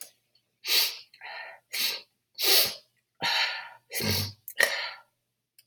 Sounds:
Sniff